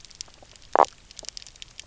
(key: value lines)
label: biophony, knock croak
recorder: SoundTrap 300